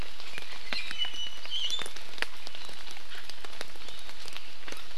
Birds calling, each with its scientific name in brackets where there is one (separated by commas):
Iiwi (Drepanis coccinea)